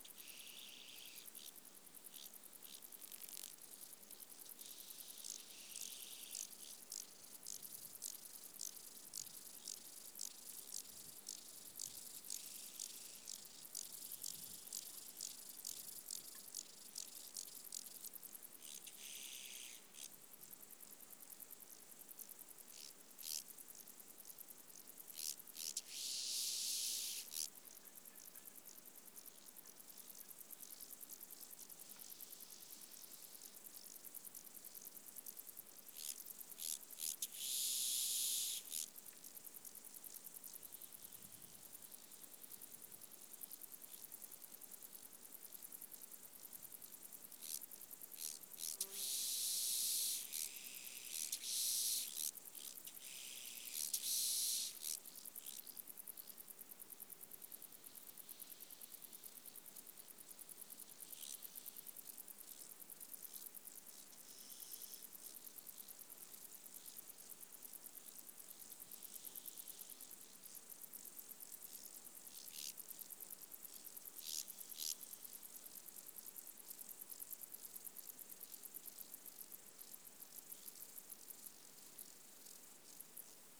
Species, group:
Arcyptera fusca, Orthoptera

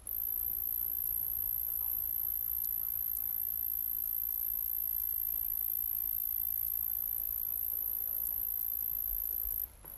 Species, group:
Cyphoderris monstrosa, Orthoptera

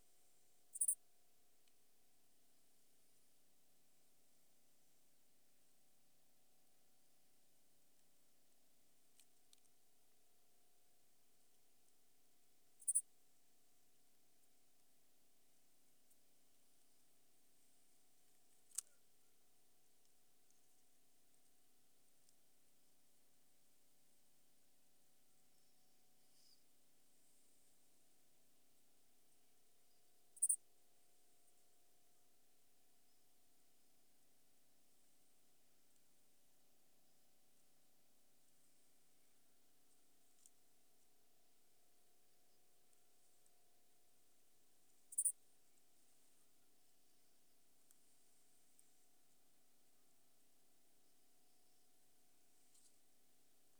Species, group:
Pholidoptera femorata, Orthoptera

